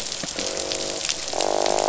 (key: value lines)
label: biophony, croak
recorder: SoundTrap 500